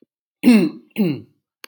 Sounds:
Throat clearing